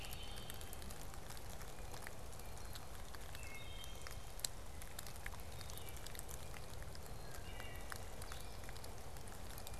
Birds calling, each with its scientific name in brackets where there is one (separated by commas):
Blue-headed Vireo (Vireo solitarius), Wood Thrush (Hylocichla mustelina)